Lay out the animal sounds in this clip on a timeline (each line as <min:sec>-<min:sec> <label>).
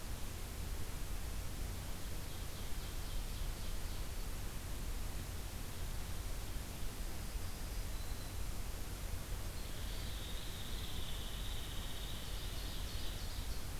0:02.0-0:04.2 Ovenbird (Seiurus aurocapilla)
0:07.0-0:08.4 Black-throated Green Warbler (Setophaga virens)
0:09.5-0:13.3 Hairy Woodpecker (Dryobates villosus)
0:12.2-0:13.8 Ovenbird (Seiurus aurocapilla)